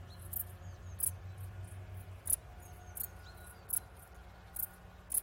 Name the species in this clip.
Pholidoptera griseoaptera